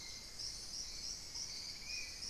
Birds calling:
Spot-winged Antshrike (Pygiptila stellaris)

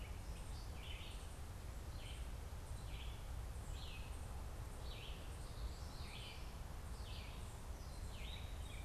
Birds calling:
Red-eyed Vireo (Vireo olivaceus), Common Yellowthroat (Geothlypis trichas)

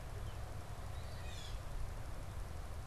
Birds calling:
Eastern Phoebe (Sayornis phoebe)

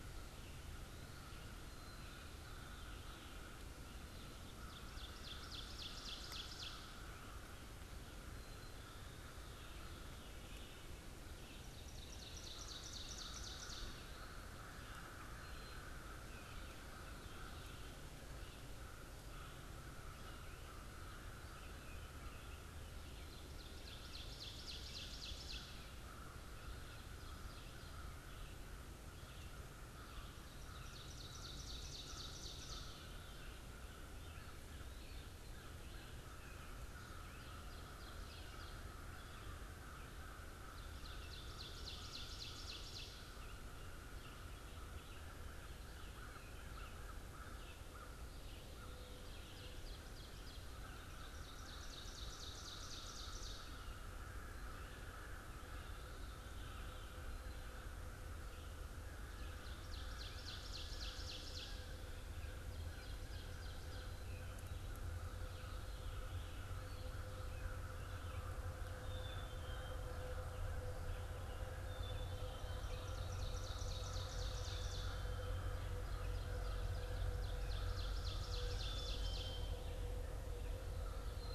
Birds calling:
Red-eyed Vireo (Vireo olivaceus), Ovenbird (Seiurus aurocapilla), Veery (Catharus fuscescens), American Crow (Corvus brachyrhynchos), Black-capped Chickadee (Poecile atricapillus)

